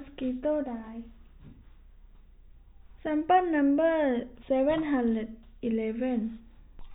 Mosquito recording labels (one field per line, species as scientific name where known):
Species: no mosquito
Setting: cup